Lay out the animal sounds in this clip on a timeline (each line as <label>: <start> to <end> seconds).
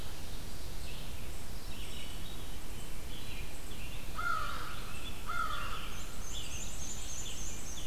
Red-eyed Vireo (Vireo olivaceus): 0.0 to 7.9 seconds
Veery (Catharus fuscescens): 1.3 to 3.1 seconds
American Crow (Corvus brachyrhynchos): 4.0 to 5.8 seconds
Scarlet Tanager (Piranga olivacea): 4.7 to 7.9 seconds
Black-and-white Warbler (Mniotilta varia): 5.7 to 7.9 seconds